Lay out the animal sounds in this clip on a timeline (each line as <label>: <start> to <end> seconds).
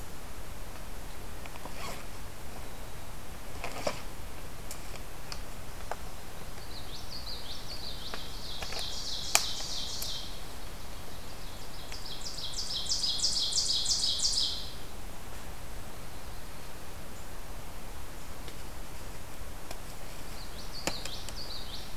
Common Yellowthroat (Geothlypis trichas): 6.6 to 8.3 seconds
Ovenbird (Seiurus aurocapilla): 8.3 to 10.4 seconds
Ovenbird (Seiurus aurocapilla): 11.5 to 14.7 seconds
Common Yellowthroat (Geothlypis trichas): 20.4 to 22.0 seconds